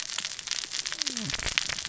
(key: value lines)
label: biophony, cascading saw
recorder: SoundTrap 600 or HydroMoth